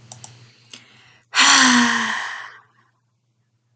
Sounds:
Sigh